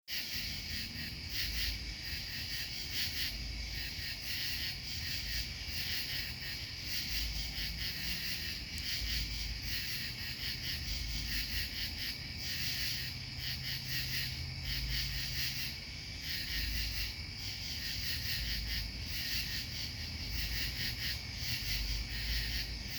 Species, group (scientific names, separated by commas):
Pterophylla camellifolia, Orthoptera